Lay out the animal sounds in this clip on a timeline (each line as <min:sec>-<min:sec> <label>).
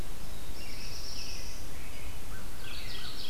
0:00.1-0:01.7 Black-throated Blue Warbler (Setophaga caerulescens)
0:00.3-0:03.1 American Robin (Turdus migratorius)
0:02.1-0:03.3 American Crow (Corvus brachyrhynchos)
0:02.5-0:03.3 Mourning Warbler (Geothlypis philadelphia)